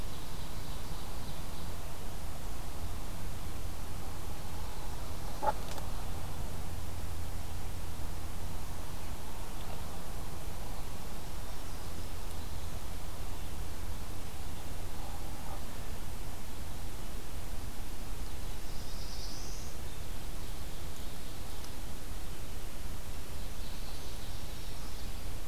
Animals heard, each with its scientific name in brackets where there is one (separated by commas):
Indigo Bunting (Passerina cyanea), Ovenbird (Seiurus aurocapilla), Black-throated Blue Warbler (Setophaga caerulescens)